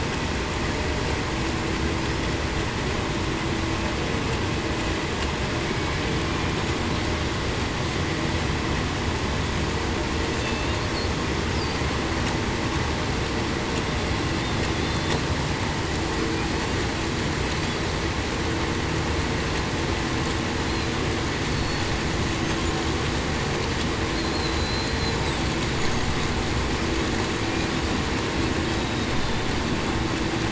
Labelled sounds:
14.8	15.1	killer whale, Bigg's (transient), 3.5 to 3.6 kHz
24.2	25.2	killer whale, Bigg's (transient), 4.0 to 4.3 kHz

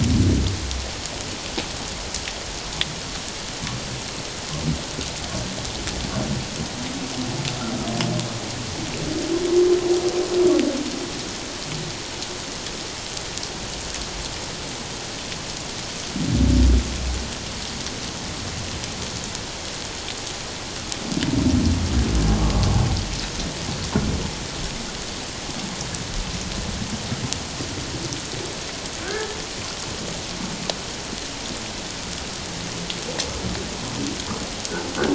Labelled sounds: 29.0	29.4	humpback whale, 1.2 to 1.8 kHz

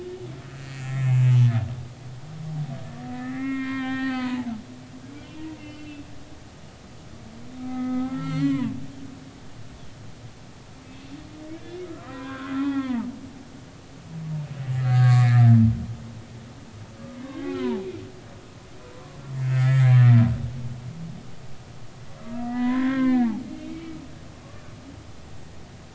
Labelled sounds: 0.7	1.5	humpback whale, 0.80 to 7.1 kHz
3.1	4.5	humpback whale, 0.83 to 4.5 kHz
5.4	6.0	humpback whale, 0.86 to 3.1 kHz
7.6	8.7	humpback whale, 0.80 to 6.0 kHz
12.0	13.1	humpback whale, 0.80 to 3.7 kHz
14.7	15.5	humpback whale, 1.1 to 7.3 kHz
17.3	17.8	humpback whale, 0.80 to 2.6 kHz
18.9	20.2	humpback whale, 0.96 to 3.2 kHz
22.4	24.3	humpback whale, 0.93 to 3.6 kHz

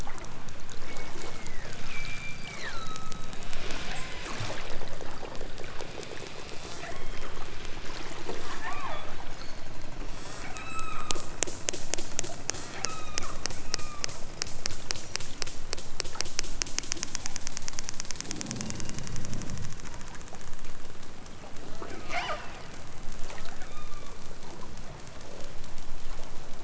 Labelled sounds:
0.9	4.2	killer whale, southern Alaska resident, 0.55 to 8.0 kHz
6.7	7.4	killer whale, southern Alaska resident, 1.1 to 8.0 kHz
8.5	9.2	killer whale, southern Alaska resident, 0.23 to 8.0 kHz
10.0	11.2	killer whale, southern Alaska resident, 0.64 to 8.0 kHz
12.7	13.4	killer whale, southern Alaska resident, 0.83 to 8.0 kHz
13.6	14.1	killer whale, southern Alaska resident, 1.0 to 3.9 kHz
17.1	17.5	killer whale, southern Alaska resident, 1.7 to 3.8 kHz
18.5	19.3	killer whale, southern Alaska resident, 2.0 to 4.2 kHz
22.0	22.6	killer whale, southern Alaska resident, 0.32 to 8.0 kHz
23.7	24.2	killer whale, southern Alaska resident, 0.74 to 4.2 kHz

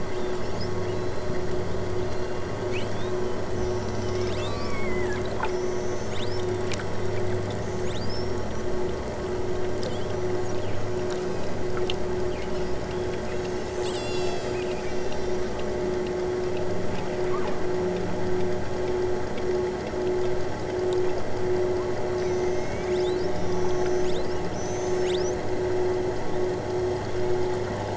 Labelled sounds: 0.0	1.7	killer whale, southern Alaska resident, 2.3 to 8.0 kHz
2.0	3.2	killer whale, southern Alaska resident, 2.5 to 8.0 kHz
3.5	7.2	killer whale, southern Alaska resident, 1.4 to 8.0 kHz
7.5	8.7	killer whale, southern Alaska resident, 2.2 to 8.0 kHz
11.1	11.5	killer whale, southern Alaska resident, 2.2 to 8.0 kHz
12.5	15.7	killer whale, southern Alaska resident, 2.2 to 8.0 kHz
17.1	17.6	killer whale, southern Alaska resident, 1.9 to 3.5 kHz
22.1	25.5	killer whale, southern Alaska resident, 2.1 to 8.0 kHz

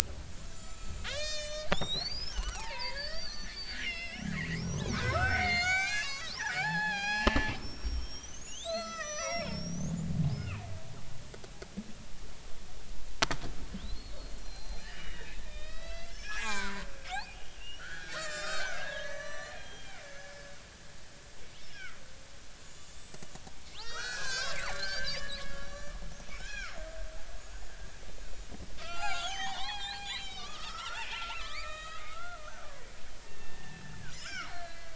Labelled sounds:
0.4	10.6	killer whale, Bigg's (transient), 0.80 to 8.0 kHz
13.8	20.5	killer whale, Bigg's (transient), 0.80 to 7.7 kHz
21.7	26.8	killer whale, Bigg's (transient), 0.99 to 7.8 kHz
27.4	27.7	killer whale, Bigg's (transient), 6.6 to 6.9 kHz
28.8	32.4	killer whale, Bigg's (transient), 0.80 to 7.5 kHz
33.2	34.9	killer whale, Bigg's (transient), 0.93 to 5.3 kHz

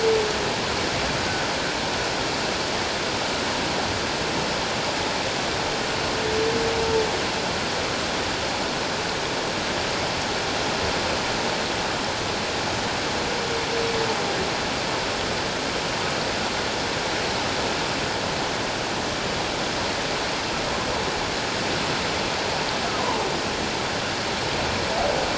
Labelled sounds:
23.0	23.3	humpback whale, 0.81 to 1.1 kHz

